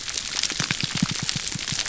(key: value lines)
label: biophony, pulse
recorder: SoundTrap 300